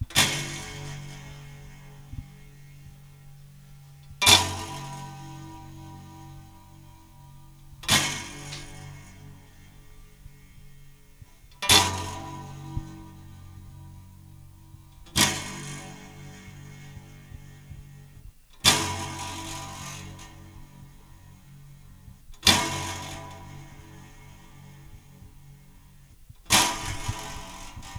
Is there some clanging?
yes